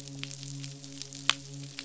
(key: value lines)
label: biophony, midshipman
recorder: SoundTrap 500